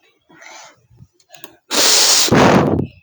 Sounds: Sniff